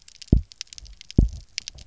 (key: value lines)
label: biophony, double pulse
recorder: SoundTrap 300